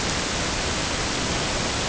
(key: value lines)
label: ambient
recorder: HydroMoth